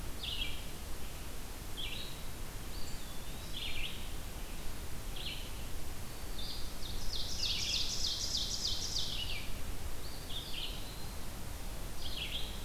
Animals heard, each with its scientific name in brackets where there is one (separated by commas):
Eastern Wood-Pewee (Contopus virens), Black-throated Green Warbler (Setophaga virens), Red-eyed Vireo (Vireo olivaceus), Ovenbird (Seiurus aurocapilla)